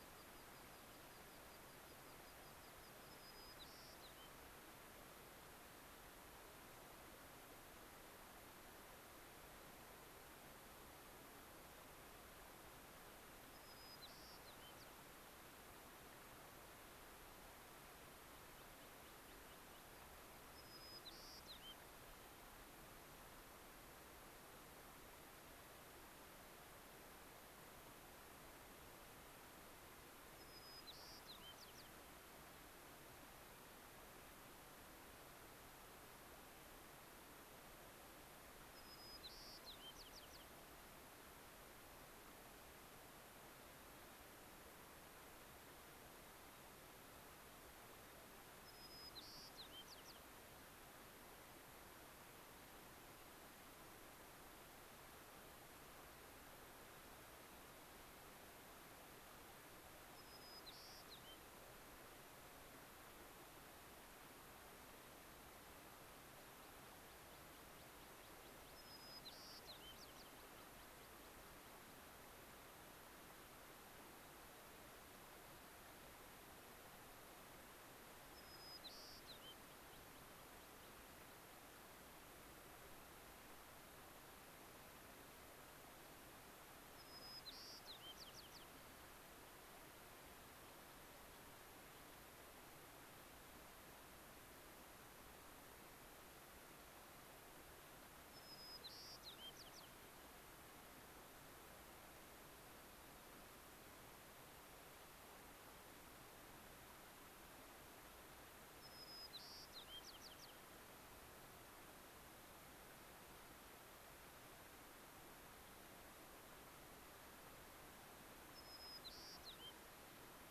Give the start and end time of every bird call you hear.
[0.00, 3.00] American Pipit (Anthus rubescens)
[3.20, 4.30] White-crowned Sparrow (Zonotrichia leucophrys)
[13.30, 14.90] White-crowned Sparrow (Zonotrichia leucophrys)
[18.50, 20.00] American Pipit (Anthus rubescens)
[20.30, 22.00] White-crowned Sparrow (Zonotrichia leucophrys)
[30.00, 32.00] White-crowned Sparrow (Zonotrichia leucophrys)
[38.40, 40.50] White-crowned Sparrow (Zonotrichia leucophrys)
[48.40, 50.20] White-crowned Sparrow (Zonotrichia leucophrys)
[60.00, 61.40] White-crowned Sparrow (Zonotrichia leucophrys)
[68.60, 70.40] White-crowned Sparrow (Zonotrichia leucophrys)
[78.20, 79.60] White-crowned Sparrow (Zonotrichia leucophrys)
[79.60, 82.40] American Pipit (Anthus rubescens)
[86.80, 88.80] White-crowned Sparrow (Zonotrichia leucophrys)
[98.10, 99.90] White-crowned Sparrow (Zonotrichia leucophrys)
[108.70, 110.60] White-crowned Sparrow (Zonotrichia leucophrys)
[118.50, 119.80] White-crowned Sparrow (Zonotrichia leucophrys)

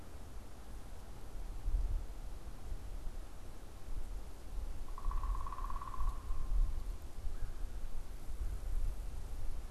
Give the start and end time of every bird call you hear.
[4.78, 6.88] unidentified bird

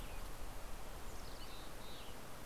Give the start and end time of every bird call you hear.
[0.96, 2.26] Mountain Chickadee (Poecile gambeli)
[1.66, 2.36] Western Tanager (Piranga ludoviciana)

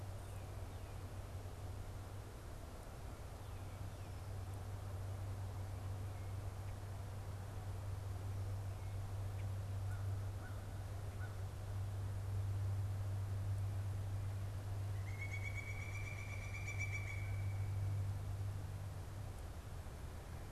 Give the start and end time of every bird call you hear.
[9.57, 11.77] American Crow (Corvus brachyrhynchos)
[14.67, 18.47] Pileated Woodpecker (Dryocopus pileatus)

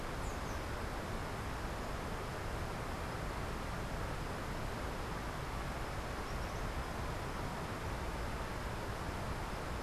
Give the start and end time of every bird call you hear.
[0.00, 0.70] unidentified bird
[6.10, 6.90] Tropical Kingbird (Tyrannus melancholicus)

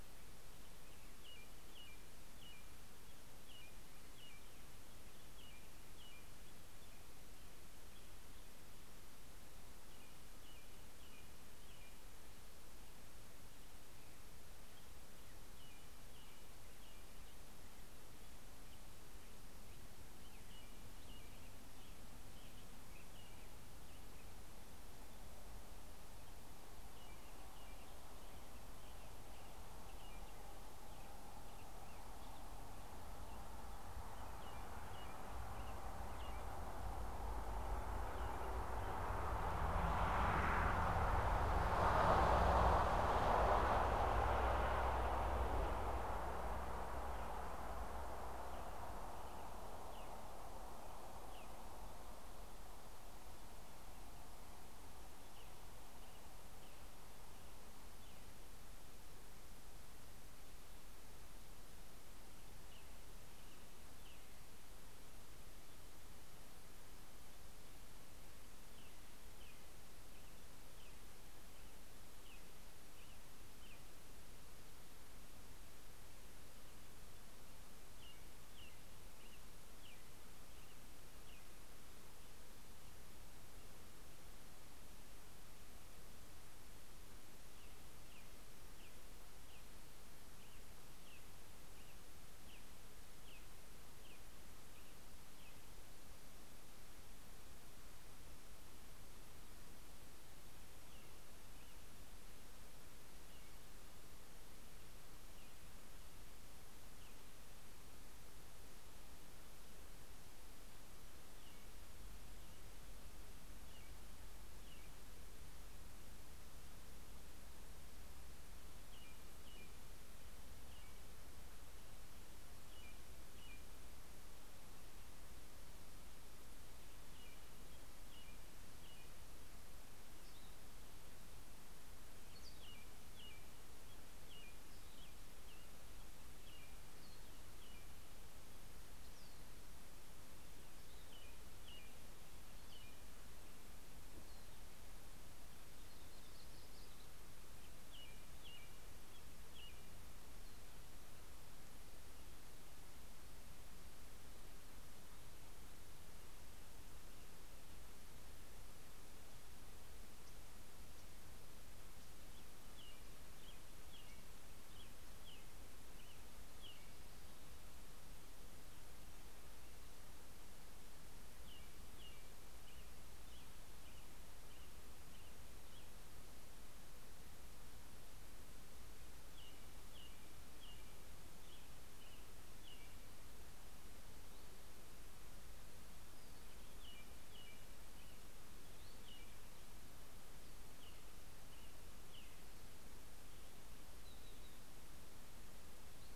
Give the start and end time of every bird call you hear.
[0.32, 12.42] American Robin (Turdus migratorius)
[15.12, 24.62] American Robin (Turdus migratorius)
[26.32, 37.32] American Robin (Turdus migratorius)
[49.52, 58.92] American Robin (Turdus migratorius)
[62.02, 82.12] American Robin (Turdus migratorius)
[87.42, 96.02] American Robin (Turdus migratorius)
[100.22, 116.12] American Robin (Turdus migratorius)
[118.32, 124.22] American Robin (Turdus migratorius)
[126.22, 144.52] American Robin (Turdus migratorius)
[144.92, 147.42] Yellow-rumped Warbler (Setophaga coronata)
[147.52, 150.12] American Robin (Turdus migratorius)
[161.92, 168.02] American Robin (Turdus migratorius)
[171.12, 176.32] American Robin (Turdus migratorius)
[178.82, 183.32] American Robin (Turdus migratorius)
[186.02, 192.72] American Robin (Turdus migratorius)

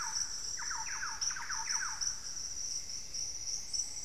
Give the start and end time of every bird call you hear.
[0.00, 2.45] Thrush-like Wren (Campylorhynchus turdinus)
[2.35, 4.04] Plumbeous Antbird (Myrmelastes hyperythrus)
[3.15, 4.04] Ruddy Pigeon (Patagioenas subvinacea)

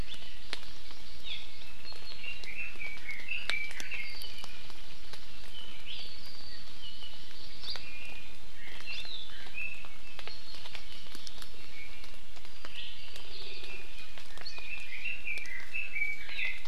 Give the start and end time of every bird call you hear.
[0.18, 1.68] Hawaii Amakihi (Chlorodrepanis virens)
[2.18, 4.18] Red-billed Leiothrix (Leiothrix lutea)
[5.88, 6.08] Iiwi (Drepanis coccinea)
[6.68, 7.68] Hawaii Amakihi (Chlorodrepanis virens)
[7.78, 8.38] Iiwi (Drepanis coccinea)
[8.88, 9.08] Iiwi (Drepanis coccinea)
[10.28, 11.58] Hawaii Amakihi (Chlorodrepanis virens)
[11.58, 12.18] Iiwi (Drepanis coccinea)
[12.68, 12.98] Iiwi (Drepanis coccinea)
[13.38, 13.88] Iiwi (Drepanis coccinea)
[14.48, 16.58] Red-billed Leiothrix (Leiothrix lutea)

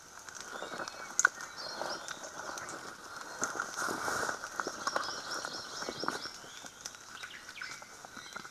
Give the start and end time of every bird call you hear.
[0.40, 2.30] Iiwi (Drepanis coccinea)
[1.40, 2.10] Hawaii Akepa (Loxops coccineus)
[4.50, 6.50] Hawaii Amakihi (Chlorodrepanis virens)
[7.10, 7.90] Omao (Myadestes obscurus)
[7.60, 8.50] Iiwi (Drepanis coccinea)

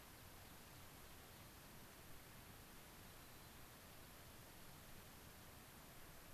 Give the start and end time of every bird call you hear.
[0.00, 1.70] unidentified bird
[3.00, 4.30] White-crowned Sparrow (Zonotrichia leucophrys)

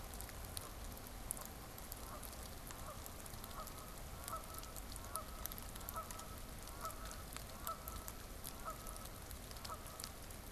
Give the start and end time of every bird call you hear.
[0.08, 10.51] Canada Goose (Branta canadensis)

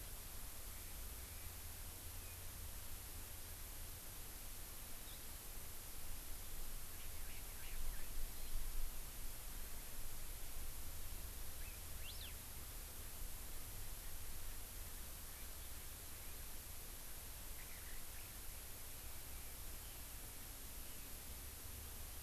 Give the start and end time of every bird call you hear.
[11.56, 12.36] Hawaii Elepaio (Chasiempis sandwichensis)

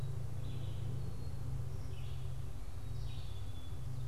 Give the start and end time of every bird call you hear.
[0.00, 4.07] Black-capped Chickadee (Poecile atricapillus)
[0.13, 4.07] Red-eyed Vireo (Vireo olivaceus)

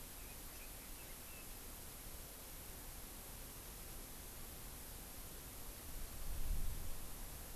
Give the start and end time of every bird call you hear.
[0.00, 1.60] Chinese Hwamei (Garrulax canorus)

